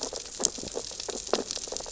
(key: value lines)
label: biophony, sea urchins (Echinidae)
recorder: SoundTrap 600 or HydroMoth